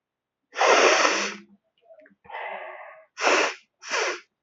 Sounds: Sniff